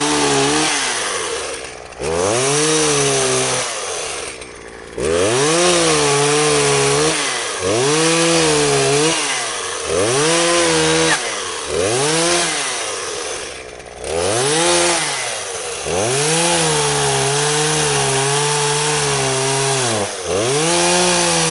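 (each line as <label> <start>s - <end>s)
A chainsaw revving idly. 0.0s - 21.5s
A chainsaw idling. 4.6s - 4.9s
A chainsaw idling. 13.6s - 14.0s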